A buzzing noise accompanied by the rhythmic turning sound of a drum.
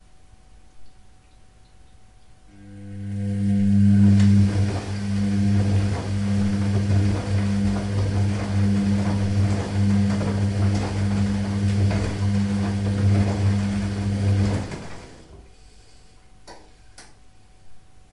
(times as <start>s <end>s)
2.5s 15.2s